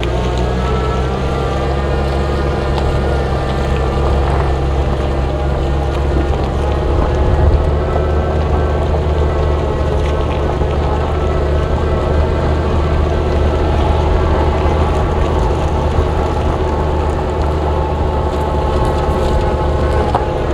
Is there a machine?
yes